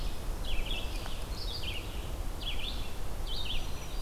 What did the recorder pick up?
Red-eyed Vireo, Black-throated Green Warbler